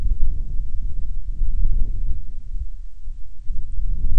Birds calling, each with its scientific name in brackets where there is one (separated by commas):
Band-rumped Storm-Petrel (Hydrobates castro)